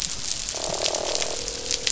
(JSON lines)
{"label": "biophony, croak", "recorder": "SoundTrap 500"}